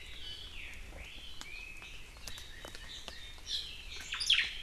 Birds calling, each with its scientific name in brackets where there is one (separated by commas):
Omao (Myadestes obscurus), Chinese Hwamei (Garrulax canorus)